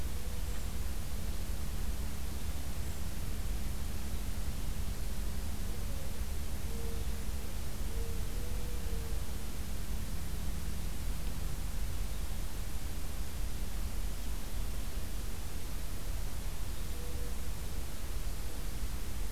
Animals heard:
forest ambience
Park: Acadia National Park